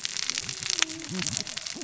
{"label": "biophony, cascading saw", "recorder": "SoundTrap 600 or HydroMoth"}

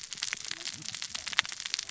{"label": "biophony, cascading saw", "recorder": "SoundTrap 600 or HydroMoth"}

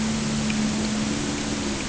{"label": "anthrophony, boat engine", "recorder": "HydroMoth"}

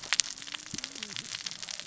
{"label": "biophony, cascading saw", "recorder": "SoundTrap 600 or HydroMoth"}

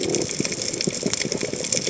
{"label": "biophony", "recorder": "HydroMoth"}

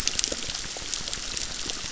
{"label": "biophony, crackle", "recorder": "SoundTrap 600"}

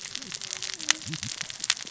{"label": "biophony, cascading saw", "recorder": "SoundTrap 600 or HydroMoth"}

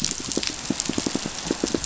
{"label": "biophony, pulse", "recorder": "SoundTrap 500"}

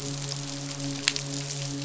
{"label": "biophony, midshipman", "recorder": "SoundTrap 500"}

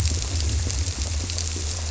{"label": "biophony", "recorder": "SoundTrap 300"}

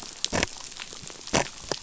{"label": "biophony", "recorder": "SoundTrap 500"}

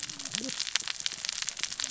{"label": "biophony, cascading saw", "recorder": "SoundTrap 600 or HydroMoth"}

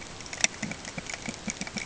{"label": "ambient", "recorder": "HydroMoth"}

